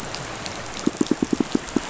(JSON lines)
{"label": "biophony, pulse", "recorder": "SoundTrap 500"}